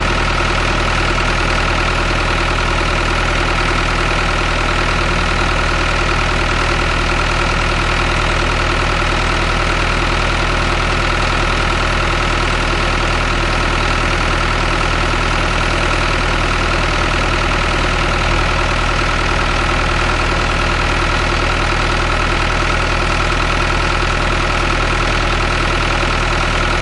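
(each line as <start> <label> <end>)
0.0 The engine of a road-sweeping vehicle idles. 26.8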